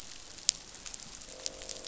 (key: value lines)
label: biophony, croak
recorder: SoundTrap 500